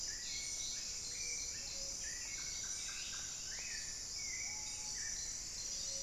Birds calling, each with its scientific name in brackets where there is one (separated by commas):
Screaming Piha (Lipaugus vociferans), Solitary Black Cacique (Cacicus solitarius), Plumbeous Antbird (Myrmelastes hyperythrus), Paradise Tanager (Tangara chilensis), Black-billed Thrush (Turdus ignobilis)